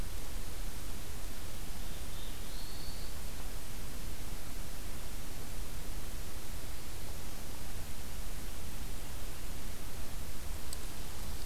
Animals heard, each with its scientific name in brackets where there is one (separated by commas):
Black-throated Blue Warbler (Setophaga caerulescens)